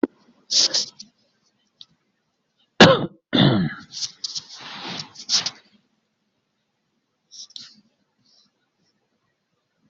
{"expert_labels": [{"quality": "ok", "cough_type": "unknown", "dyspnea": false, "wheezing": false, "stridor": false, "choking": false, "congestion": false, "nothing": true, "diagnosis": "healthy cough", "severity": "pseudocough/healthy cough"}, {"quality": "good", "cough_type": "dry", "dyspnea": false, "wheezing": false, "stridor": false, "choking": false, "congestion": false, "nothing": true, "diagnosis": "upper respiratory tract infection", "severity": "mild"}, {"quality": "good", "cough_type": "dry", "dyspnea": false, "wheezing": false, "stridor": false, "choking": false, "congestion": false, "nothing": true, "diagnosis": "healthy cough", "severity": "pseudocough/healthy cough"}, {"quality": "good", "cough_type": "dry", "dyspnea": false, "wheezing": false, "stridor": false, "choking": false, "congestion": false, "nothing": true, "diagnosis": "healthy cough", "severity": "pseudocough/healthy cough"}]}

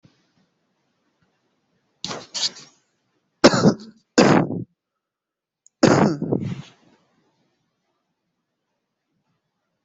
{"expert_labels": [{"quality": "ok", "cough_type": "dry", "dyspnea": false, "wheezing": false, "stridor": false, "choking": false, "congestion": false, "nothing": true, "diagnosis": "upper respiratory tract infection", "severity": "mild"}], "age": 24, "gender": "male", "respiratory_condition": false, "fever_muscle_pain": false, "status": "symptomatic"}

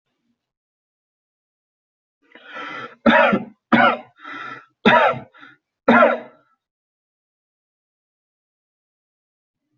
{"expert_labels": [{"quality": "ok", "cough_type": "dry", "dyspnea": false, "wheezing": false, "stridor": false, "choking": false, "congestion": false, "nothing": true, "diagnosis": "lower respiratory tract infection", "severity": "mild"}], "age": 20, "gender": "male", "respiratory_condition": false, "fever_muscle_pain": false, "status": "healthy"}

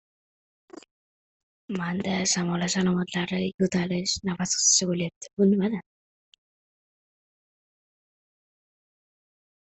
{"expert_labels": [{"quality": "no cough present", "cough_type": "unknown", "dyspnea": false, "wheezing": false, "stridor": false, "choking": false, "congestion": false, "nothing": false, "diagnosis": "healthy cough", "severity": "unknown"}], "gender": "female", "respiratory_condition": false, "fever_muscle_pain": false, "status": "symptomatic"}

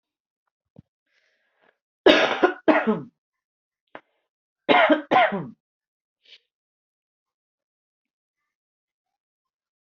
{"expert_labels": [{"quality": "good", "cough_type": "dry", "dyspnea": false, "wheezing": false, "stridor": false, "choking": false, "congestion": false, "nothing": true, "diagnosis": "upper respiratory tract infection", "severity": "mild"}], "age": 37, "gender": "female", "respiratory_condition": false, "fever_muscle_pain": false, "status": "healthy"}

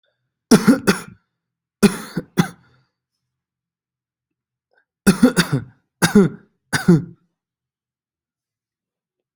{"expert_labels": [{"quality": "good", "cough_type": "dry", "dyspnea": false, "wheezing": false, "stridor": false, "choking": false, "congestion": false, "nothing": true, "diagnosis": "COVID-19", "severity": "mild"}], "age": 28, "gender": "male", "respiratory_condition": false, "fever_muscle_pain": false, "status": "healthy"}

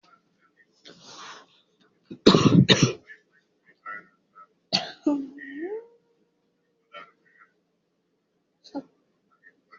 {"expert_labels": [{"quality": "ok", "cough_type": "dry", "dyspnea": false, "wheezing": false, "stridor": false, "choking": false, "congestion": false, "nothing": true, "diagnosis": "COVID-19", "severity": "mild"}]}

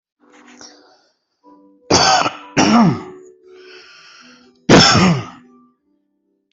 {"expert_labels": [{"quality": "ok", "cough_type": "dry", "dyspnea": false, "wheezing": false, "stridor": false, "choking": false, "congestion": false, "nothing": true, "diagnosis": "COVID-19", "severity": "mild"}], "age": 44, "gender": "male", "respiratory_condition": true, "fever_muscle_pain": false, "status": "symptomatic"}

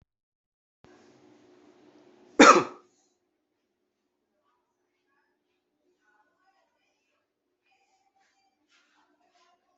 {"expert_labels": [{"quality": "good", "cough_type": "dry", "dyspnea": false, "wheezing": false, "stridor": false, "choking": false, "congestion": false, "nothing": true, "diagnosis": "healthy cough", "severity": "pseudocough/healthy cough"}], "age": 29, "gender": "male", "respiratory_condition": false, "fever_muscle_pain": false, "status": "healthy"}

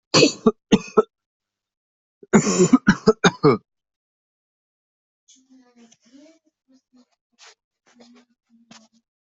{"expert_labels": [{"quality": "ok", "cough_type": "dry", "dyspnea": false, "wheezing": false, "stridor": false, "choking": false, "congestion": false, "nothing": true, "diagnosis": "COVID-19", "severity": "mild"}, {"quality": "good", "cough_type": "dry", "dyspnea": false, "wheezing": false, "stridor": false, "choking": false, "congestion": false, "nothing": true, "diagnosis": "COVID-19", "severity": "mild"}, {"quality": "good", "cough_type": "dry", "dyspnea": false, "wheezing": false, "stridor": false, "choking": false, "congestion": false, "nothing": true, "diagnosis": "upper respiratory tract infection", "severity": "mild"}, {"quality": "good", "cough_type": "dry", "dyspnea": false, "wheezing": false, "stridor": false, "choking": false, "congestion": false, "nothing": true, "diagnosis": "healthy cough", "severity": "pseudocough/healthy cough"}], "age": 20, "gender": "male", "respiratory_condition": true, "fever_muscle_pain": false, "status": "healthy"}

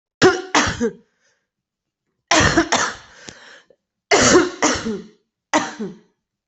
{"expert_labels": [{"quality": "good", "cough_type": "dry", "dyspnea": false, "wheezing": false, "stridor": false, "choking": false, "congestion": false, "nothing": true, "diagnosis": "lower respiratory tract infection", "severity": "mild"}]}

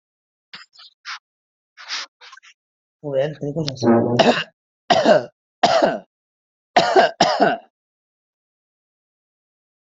{"expert_labels": [{"quality": "ok", "cough_type": "unknown", "dyspnea": false, "wheezing": false, "stridor": false, "choking": false, "congestion": false, "nothing": true, "diagnosis": "healthy cough", "severity": "pseudocough/healthy cough"}], "gender": "female", "respiratory_condition": true, "fever_muscle_pain": true, "status": "COVID-19"}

